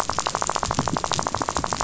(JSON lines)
{"label": "biophony, rattle", "recorder": "SoundTrap 500"}